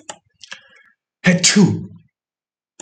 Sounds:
Sneeze